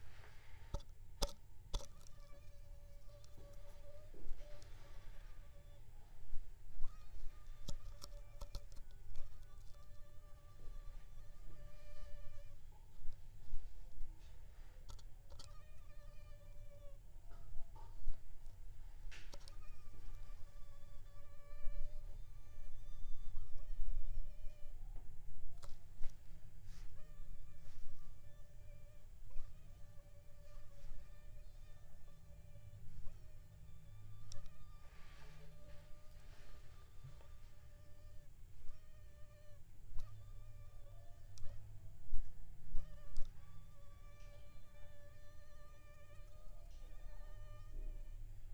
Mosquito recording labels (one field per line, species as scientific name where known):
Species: Aedes aegypti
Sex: female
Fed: unfed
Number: one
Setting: cup